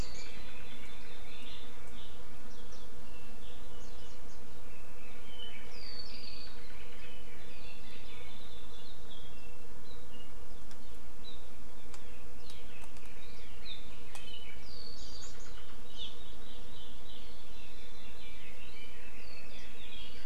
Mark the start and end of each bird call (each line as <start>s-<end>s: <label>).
4.7s-8.4s: Red-billed Leiothrix (Leiothrix lutea)
12.0s-14.8s: Red-billed Leiothrix (Leiothrix lutea)
14.6s-15.3s: Warbling White-eye (Zosterops japonicus)
18.0s-20.2s: Red-billed Leiothrix (Leiothrix lutea)